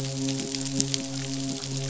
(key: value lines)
label: biophony, midshipman
recorder: SoundTrap 500